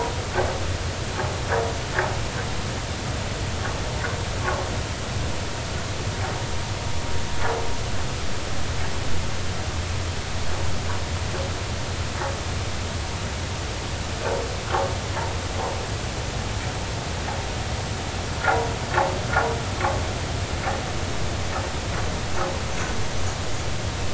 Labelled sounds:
22.7	22.9	vessel noise, 5.9 to 6.1 kHz

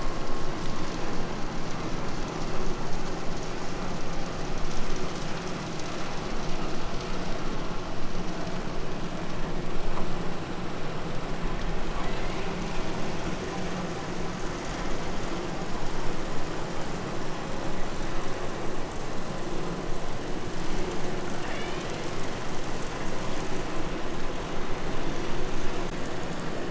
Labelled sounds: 11.9	12.6	killer whale, southern Alaska resident, 1.6 to 5.5 kHz
21.3	22.5	killer whale, southern Alaska resident, 0.88 to 6.1 kHz

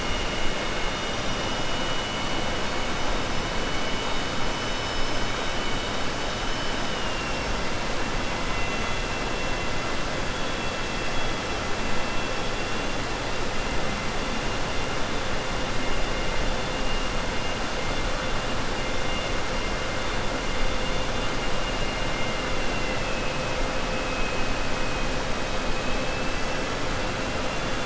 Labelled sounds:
22.4	23.2	killer whale, southern resident, 2.0 to 3.5 kHz
25.8	26.6	killer whale, southern resident, 2.0 to 3.3 kHz

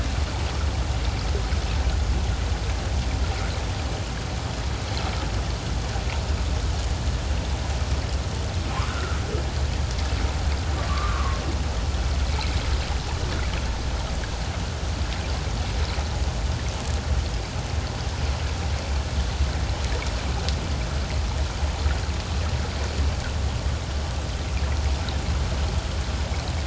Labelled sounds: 8.9	9.2	humpback whale, 1.2 to 1.5 kHz
10.9	11.4	humpback whale, 1.0 to 1.3 kHz

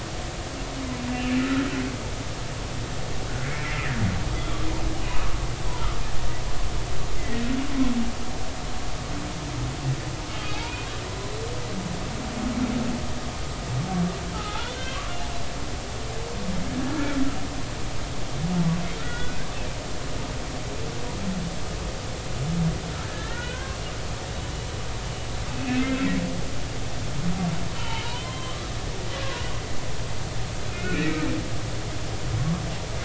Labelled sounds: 1.4	1.6	humpback whale, 1.2 to 1.5 kHz
3.4	3.9	humpback whale, 1.7 to 2.4 kHz
5.0	5.3	humpback whale, 2.4 to 2.7 kHz
7.2	7.4	humpback whale, 1.8 to 2.1 kHz
14.3	15.0	humpback whale, 0.80 to 3.7 kHz
16.9	17.2	humpback whale, 1.3 to 1.5 kHz
19.0	19.4	humpback whale, 1.3 to 3.5 kHz
23.1	23.8	humpback whale, 0.99 to 3.2 kHz
25.5	25.9	humpback whale, 2.4 to 2.8 kHz
27.7	28.7	humpback whale, 0.86 to 3.3 kHz
30.7	31.2	humpback whale, 1.3 to 2.8 kHz

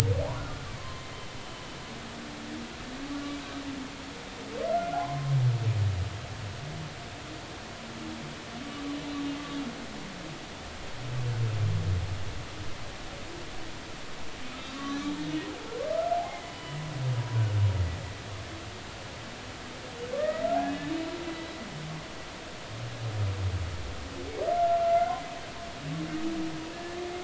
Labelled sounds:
0.8	1.1	humpback whale, 0.99 to 1.1 kHz
4.7	5.3	humpback whale, 0.96 to 1.5 kHz
14.5	15.0	humpback whale, 1.1 to 6.0 kHz
16.2	16.9	humpback whale, 0.80 to 3.0 kHz
20.1	20.9	humpback whale, 1.1 to 2.0 kHz
24.9	25.2	humpback whale, 2.0 to 2.2 kHz
26.7	27.0	humpback whale, 1.7 to 1.8 kHz

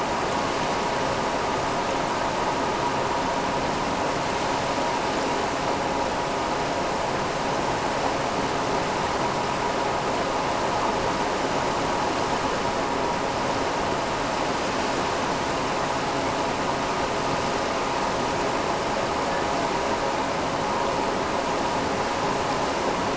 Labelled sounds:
19.2	19.5	killer whale, Bigg's (transient), AT1 transient, 1.4 to 2.1 kHz

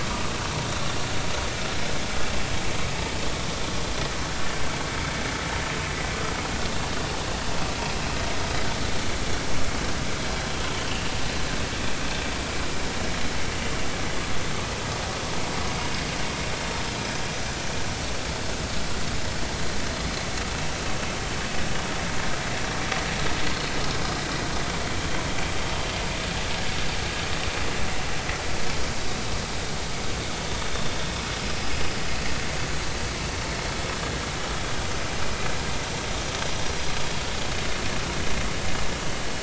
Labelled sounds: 33.7	33.9	vessel noise, 3.3 to 3.6 kHz

